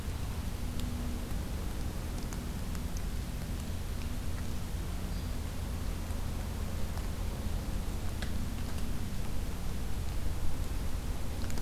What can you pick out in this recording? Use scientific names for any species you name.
Dryobates villosus